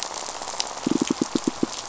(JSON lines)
{"label": "biophony, pulse", "recorder": "SoundTrap 500"}